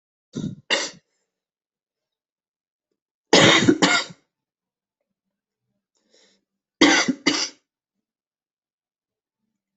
{"expert_labels": [{"quality": "ok", "cough_type": "dry", "dyspnea": false, "wheezing": false, "stridor": false, "choking": false, "congestion": false, "nothing": true, "diagnosis": "COVID-19", "severity": "mild"}], "age": 20, "gender": "male", "respiratory_condition": false, "fever_muscle_pain": false, "status": "symptomatic"}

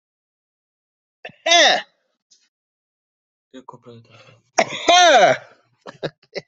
{"expert_labels": [{"quality": "ok", "cough_type": "dry", "dyspnea": false, "wheezing": false, "stridor": false, "choking": false, "congestion": false, "nothing": true, "diagnosis": "healthy cough", "severity": "pseudocough/healthy cough"}], "age": 24, "gender": "male", "respiratory_condition": false, "fever_muscle_pain": true, "status": "COVID-19"}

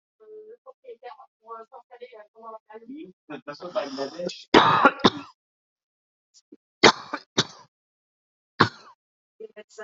{"expert_labels": [{"quality": "good", "cough_type": "dry", "dyspnea": false, "wheezing": false, "stridor": false, "choking": false, "congestion": false, "nothing": true, "diagnosis": "upper respiratory tract infection", "severity": "mild"}], "age": 49, "gender": "male", "respiratory_condition": false, "fever_muscle_pain": false, "status": "healthy"}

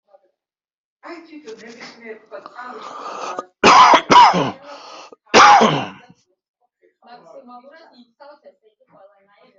{"expert_labels": [{"quality": "poor", "cough_type": "unknown", "dyspnea": false, "wheezing": false, "stridor": false, "choking": false, "congestion": false, "nothing": true, "diagnosis": "COVID-19", "severity": "unknown"}], "age": 41, "gender": "male", "respiratory_condition": true, "fever_muscle_pain": false, "status": "COVID-19"}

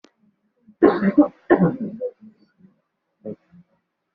{"expert_labels": [{"quality": "poor", "cough_type": "wet", "dyspnea": false, "wheezing": false, "stridor": false, "choking": false, "congestion": false, "nothing": true, "diagnosis": "lower respiratory tract infection", "severity": "mild"}]}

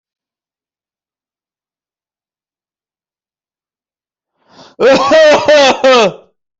{"expert_labels": [{"quality": "good", "cough_type": "dry", "dyspnea": false, "wheezing": false, "stridor": false, "choking": false, "congestion": false, "nothing": true, "diagnosis": "healthy cough", "severity": "pseudocough/healthy cough"}], "age": 30, "gender": "male", "respiratory_condition": false, "fever_muscle_pain": false, "status": "healthy"}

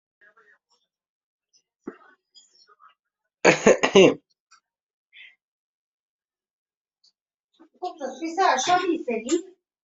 {"expert_labels": [{"quality": "ok", "cough_type": "unknown", "dyspnea": false, "wheezing": false, "stridor": false, "choking": false, "congestion": false, "nothing": true, "diagnosis": "healthy cough", "severity": "pseudocough/healthy cough"}], "age": 34, "gender": "male", "respiratory_condition": false, "fever_muscle_pain": false, "status": "healthy"}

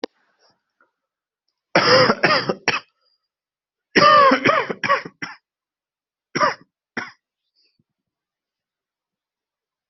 {"expert_labels": [{"quality": "good", "cough_type": "dry", "dyspnea": false, "wheezing": false, "stridor": false, "choking": false, "congestion": false, "nothing": true, "diagnosis": "COVID-19", "severity": "mild"}], "age": 18, "gender": "female", "respiratory_condition": true, "fever_muscle_pain": true, "status": "healthy"}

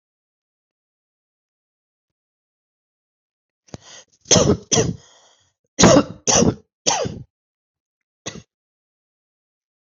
{"expert_labels": [{"quality": "good", "cough_type": "dry", "dyspnea": false, "wheezing": false, "stridor": false, "choking": false, "congestion": false, "nothing": true, "diagnosis": "upper respiratory tract infection", "severity": "mild"}], "age": 42, "gender": "female", "respiratory_condition": false, "fever_muscle_pain": false, "status": "symptomatic"}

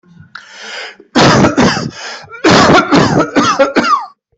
{"expert_labels": [{"quality": "good", "cough_type": "wet", "dyspnea": false, "wheezing": false, "stridor": false, "choking": false, "congestion": false, "nothing": true, "diagnosis": "lower respiratory tract infection", "severity": "severe"}], "age": 47, "gender": "male", "respiratory_condition": false, "fever_muscle_pain": false, "status": "COVID-19"}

